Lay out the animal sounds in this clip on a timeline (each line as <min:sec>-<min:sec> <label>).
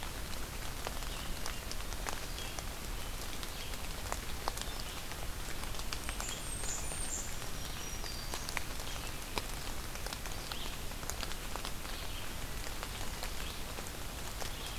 0:00.0-0:14.8 Red-eyed Vireo (Vireo olivaceus)
0:05.9-0:07.5 Blackburnian Warbler (Setophaga fusca)
0:07.3-0:08.7 Black-throated Green Warbler (Setophaga virens)